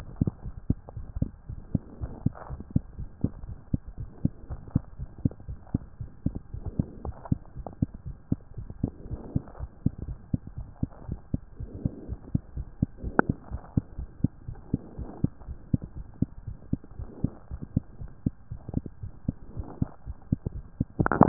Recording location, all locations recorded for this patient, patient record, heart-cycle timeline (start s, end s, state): mitral valve (MV)
aortic valve (AV)+pulmonary valve (PV)+tricuspid valve (TV)+mitral valve (MV)
#Age: Child
#Sex: Female
#Height: 92.0 cm
#Weight: 14.0 kg
#Pregnancy status: False
#Murmur: Absent
#Murmur locations: nan
#Most audible location: nan
#Systolic murmur timing: nan
#Systolic murmur shape: nan
#Systolic murmur grading: nan
#Systolic murmur pitch: nan
#Systolic murmur quality: nan
#Diastolic murmur timing: nan
#Diastolic murmur shape: nan
#Diastolic murmur grading: nan
#Diastolic murmur pitch: nan
#Diastolic murmur quality: nan
#Outcome: Abnormal
#Campaign: 2015 screening campaign
0.00	0.34	unannotated
0.34	0.44	diastole
0.44	0.52	S1
0.52	0.66	systole
0.66	0.80	S2
0.80	0.94	diastole
0.94	1.06	S1
1.06	1.16	systole
1.16	1.32	S2
1.32	1.48	diastole
1.48	1.60	S1
1.60	1.70	systole
1.70	1.84	S2
1.84	2.00	diastole
2.00	2.14	S1
2.14	2.24	systole
2.24	2.36	S2
2.36	2.50	diastole
2.50	2.64	S1
2.64	2.74	systole
2.74	2.86	S2
2.86	2.98	diastole
2.98	3.10	S1
3.10	3.20	systole
3.20	3.32	S2
3.32	3.46	diastole
3.46	3.58	S1
3.58	3.70	systole
3.70	3.84	S2
3.84	3.98	diastole
3.98	4.10	S1
4.10	4.22	systole
4.22	4.32	S2
4.32	4.50	diastole
4.50	4.60	S1
4.60	4.72	systole
4.72	4.86	S2
4.86	5.00	diastole
5.00	5.10	S1
5.10	5.20	systole
5.20	5.36	S2
5.36	5.48	diastole
5.48	5.58	S1
5.58	5.70	systole
5.70	5.84	S2
5.84	6.00	diastole
6.00	6.10	S1
6.10	6.24	systole
6.24	6.36	S2
6.36	6.52	diastole
6.52	6.62	S1
6.62	6.76	systole
6.76	6.90	S2
6.90	7.04	diastole
7.04	7.16	S1
7.16	7.28	systole
7.28	7.42	S2
7.42	7.56	diastole
7.56	7.66	S1
7.66	7.78	systole
7.78	7.92	S2
7.92	8.06	diastole
8.06	8.16	S1
8.16	8.28	systole
8.28	8.42	S2
8.42	8.56	diastole
8.56	8.70	S1
8.70	8.80	systole
8.80	8.94	S2
8.94	9.10	diastole
9.10	9.24	S1
9.24	9.32	systole
9.32	9.46	S2
9.46	9.60	diastole
9.60	9.70	S1
9.70	9.82	systole
9.82	9.94	S2
9.94	10.06	diastole
10.06	10.18	S1
10.18	10.30	systole
10.30	10.40	S2
10.40	10.58	diastole
10.58	10.68	S1
10.68	10.78	systole
10.78	10.90	S2
10.90	11.06	diastole
11.06	11.20	S1
11.20	11.34	systole
11.34	11.44	S2
11.44	11.60	diastole
11.60	11.70	S1
11.70	11.78	systole
11.78	11.92	S2
11.92	12.06	diastole
12.06	12.20	S1
12.20	12.28	systole
12.28	12.42	S2
12.42	12.54	diastole
12.54	12.68	S1
12.68	12.78	systole
12.78	12.90	S2
12.90	13.04	diastole
13.04	13.16	S1
13.16	13.26	systole
13.26	13.36	S2
13.36	13.52	diastole
13.52	13.62	S1
13.62	13.72	systole
13.72	13.84	S2
13.84	13.96	diastole
13.96	14.10	S1
14.10	14.20	systole
14.20	14.34	S2
14.34	14.48	diastole
14.48	14.60	S1
14.60	14.70	systole
14.70	14.84	S2
14.84	14.98	diastole
14.98	15.10	S1
15.10	15.22	systole
15.22	15.32	S2
15.32	15.46	diastole
15.46	15.58	S1
15.58	15.70	systole
15.70	15.82	S2
15.82	15.96	diastole
15.96	16.06	S1
16.06	16.18	systole
16.18	16.30	S2
16.30	16.46	diastole
16.46	16.58	S1
16.58	16.72	systole
16.72	16.80	S2
16.80	16.96	diastole
16.96	17.10	S1
17.10	17.22	systole
17.22	17.34	S2
17.34	17.52	diastole
17.52	17.62	S1
17.62	17.74	systole
17.74	17.86	S2
17.86	18.02	diastole
18.02	18.12	S1
18.12	18.22	systole
18.22	18.34	S2
18.34	18.52	diastole
18.52	18.62	S1
18.62	18.74	systole
18.74	18.84	S2
18.84	19.02	diastole
19.02	19.12	S1
19.12	19.24	systole
19.24	19.36	S2
19.36	19.54	diastole
19.54	19.68	S1
19.68	19.80	systole
19.80	19.92	S2
19.92	20.08	diastole
20.08	20.18	S1
20.18	20.28	systole
20.28	20.40	S2
20.40	20.54	diastole
20.54	21.28	unannotated